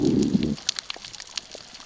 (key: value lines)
label: biophony, growl
recorder: SoundTrap 600 or HydroMoth